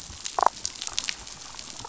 {"label": "biophony, damselfish", "recorder": "SoundTrap 500"}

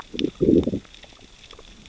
{"label": "biophony, growl", "recorder": "SoundTrap 600 or HydroMoth"}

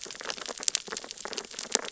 {"label": "biophony, sea urchins (Echinidae)", "recorder": "SoundTrap 600 or HydroMoth"}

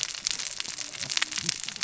{"label": "biophony, cascading saw", "recorder": "SoundTrap 600 or HydroMoth"}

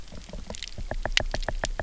{"label": "biophony, knock", "recorder": "SoundTrap 300"}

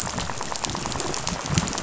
{"label": "biophony, rattle", "recorder": "SoundTrap 500"}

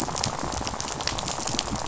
{"label": "biophony, rattle", "recorder": "SoundTrap 500"}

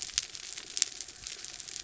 {"label": "anthrophony, mechanical", "recorder": "SoundTrap 300"}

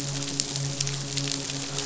{"label": "biophony, midshipman", "recorder": "SoundTrap 500"}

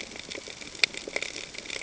{"label": "ambient", "recorder": "HydroMoth"}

